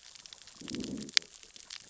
{"label": "biophony, growl", "recorder": "SoundTrap 600 or HydroMoth"}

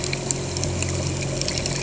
{"label": "anthrophony, boat engine", "recorder": "HydroMoth"}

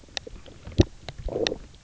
{"label": "biophony, low growl", "recorder": "SoundTrap 300"}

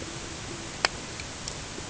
{"label": "ambient", "recorder": "HydroMoth"}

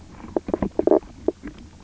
{"label": "biophony, knock croak", "recorder": "SoundTrap 300"}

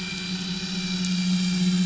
{"label": "anthrophony, boat engine", "recorder": "SoundTrap 500"}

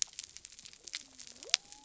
{"label": "biophony", "recorder": "SoundTrap 300"}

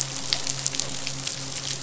{"label": "biophony, midshipman", "recorder": "SoundTrap 500"}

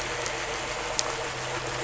{"label": "anthrophony, boat engine", "recorder": "SoundTrap 500"}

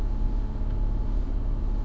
{"label": "anthrophony, boat engine", "recorder": "SoundTrap 300"}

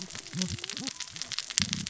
{"label": "biophony, cascading saw", "recorder": "SoundTrap 600 or HydroMoth"}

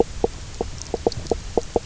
{"label": "biophony, knock croak", "recorder": "SoundTrap 300"}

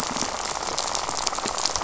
{"label": "biophony, rattle", "recorder": "SoundTrap 500"}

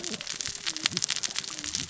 {"label": "biophony, cascading saw", "recorder": "SoundTrap 600 or HydroMoth"}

